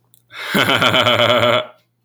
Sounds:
Laughter